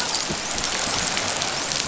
{"label": "biophony, dolphin", "recorder": "SoundTrap 500"}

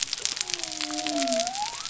{"label": "biophony", "recorder": "SoundTrap 300"}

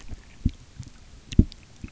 {"label": "geophony, waves", "recorder": "SoundTrap 300"}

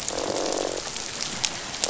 {"label": "biophony, croak", "recorder": "SoundTrap 500"}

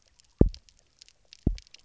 {"label": "biophony, double pulse", "recorder": "SoundTrap 300"}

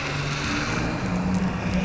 {"label": "biophony", "recorder": "SoundTrap 300"}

